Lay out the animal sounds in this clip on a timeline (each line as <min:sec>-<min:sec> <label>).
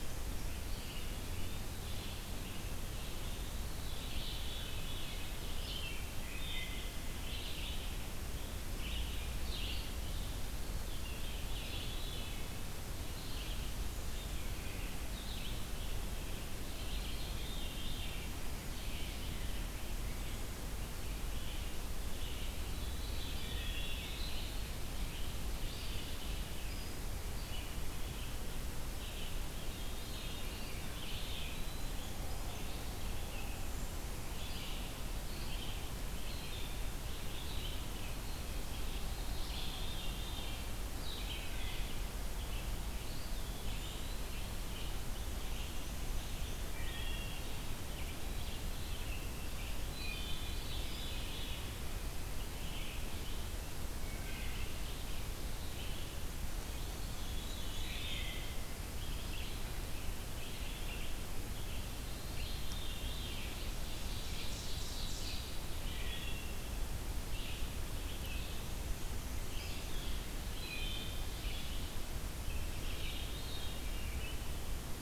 0:00.0-0:15.8 Red-eyed Vireo (Vireo olivaceus)
0:00.3-0:02.5 Eastern Wood-Pewee (Contopus virens)
0:03.5-0:05.4 Veery (Catharus fuscescens)
0:06.1-0:06.9 Wood Thrush (Hylocichla mustelina)
0:10.6-0:12.6 Veery (Catharus fuscescens)
0:16.1-1:13.5 Red-eyed Vireo (Vireo olivaceus)
0:16.9-0:18.2 Veery (Catharus fuscescens)
0:22.4-0:24.1 Veery (Catharus fuscescens)
0:23.0-0:24.8 Eastern Wood-Pewee (Contopus virens)
0:29.6-0:30.8 Veery (Catharus fuscescens)
0:30.3-0:31.9 Eastern Wood-Pewee (Contopus virens)
0:39.0-0:41.0 Veery (Catharus fuscescens)
0:41.1-0:42.0 Wood Thrush (Hylocichla mustelina)
0:42.8-0:44.8 Eastern Wood-Pewee (Contopus virens)
0:45.2-0:46.8 Black-and-white Warbler (Mniotilta varia)
0:46.7-0:47.5 Wood Thrush (Hylocichla mustelina)
0:49.8-0:50.5 Wood Thrush (Hylocichla mustelina)
0:49.9-0:51.7 Veery (Catharus fuscescens)
0:53.9-0:54.9 Wood Thrush (Hylocichla mustelina)
0:57.0-0:58.5 Veery (Catharus fuscescens)
1:01.8-1:03.9 Veery (Catharus fuscescens)
1:03.8-1:05.5 Ovenbird (Seiurus aurocapilla)
1:05.8-1:06.6 Wood Thrush (Hylocichla mustelina)
1:08.3-1:09.8 Black-and-white Warbler (Mniotilta varia)
1:10.3-1:11.6 Wood Thrush (Hylocichla mustelina)
1:12.6-1:13.5 Wood Thrush (Hylocichla mustelina)
1:13.2-1:14.6 Veery (Catharus fuscescens)